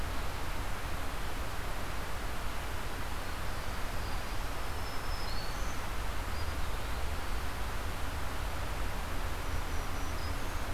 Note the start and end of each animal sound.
3.4s-6.0s: Black-throated Green Warbler (Setophaga virens)
6.1s-7.5s: Eastern Wood-Pewee (Contopus virens)
9.3s-10.7s: Black-throated Green Warbler (Setophaga virens)

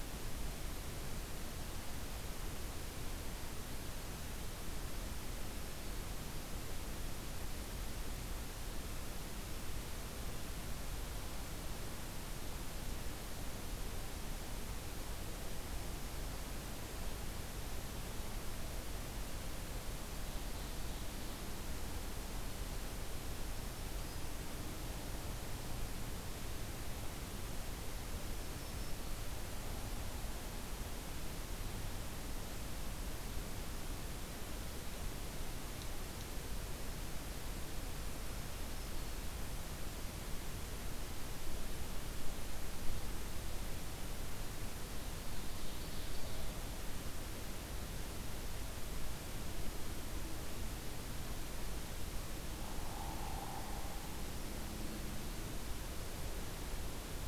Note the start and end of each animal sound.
20.0s-21.5s: Ovenbird (Seiurus aurocapilla)
23.2s-24.3s: Black-throated Green Warbler (Setophaga virens)
28.2s-29.4s: Black-throated Green Warbler (Setophaga virens)
38.2s-39.3s: Black-throated Green Warbler (Setophaga virens)
45.2s-46.6s: Ovenbird (Seiurus aurocapilla)
52.5s-54.1s: Hairy Woodpecker (Dryobates villosus)

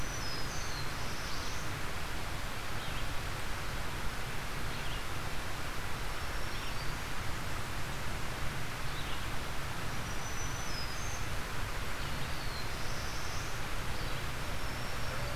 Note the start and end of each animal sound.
0.0s-0.9s: Black-throated Green Warbler (Setophaga virens)
0.0s-15.4s: Red-eyed Vireo (Vireo olivaceus)
0.3s-1.9s: Black-throated Blue Warbler (Setophaga caerulescens)
6.0s-7.3s: Black-throated Green Warbler (Setophaga virens)
9.7s-11.4s: Black-throated Green Warbler (Setophaga virens)
11.9s-13.8s: Black-throated Blue Warbler (Setophaga caerulescens)

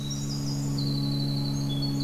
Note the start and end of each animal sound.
0.0s-2.0s: Winter Wren (Troglodytes hiemalis)

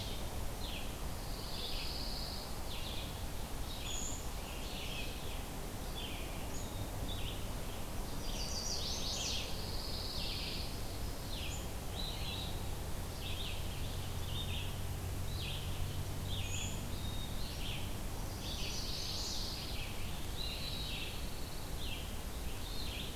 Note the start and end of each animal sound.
0.0s-10.7s: Red-eyed Vireo (Vireo olivaceus)
1.1s-2.6s: Pine Warbler (Setophaga pinus)
3.7s-4.3s: Brown Creeper (Certhia americana)
8.1s-9.5s: Chestnut-sided Warbler (Setophaga pensylvanica)
9.3s-10.8s: Pine Warbler (Setophaga pinus)
11.0s-23.2s: Red-eyed Vireo (Vireo olivaceus)
16.4s-17.0s: Brown Creeper (Certhia americana)
18.1s-19.4s: Chestnut-sided Warbler (Setophaga pensylvanica)
18.2s-19.8s: Pine Warbler (Setophaga pinus)
20.1s-21.8s: Pine Warbler (Setophaga pinus)

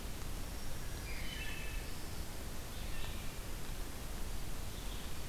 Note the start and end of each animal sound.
0.0s-5.3s: Red-eyed Vireo (Vireo olivaceus)
0.3s-1.5s: Black-throated Green Warbler (Setophaga virens)
0.9s-1.8s: Wood Thrush (Hylocichla mustelina)

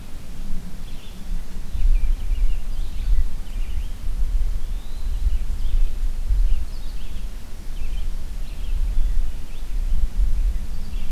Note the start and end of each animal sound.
0.0s-11.1s: Red-eyed Vireo (Vireo olivaceus)
4.4s-5.4s: Eastern Wood-Pewee (Contopus virens)

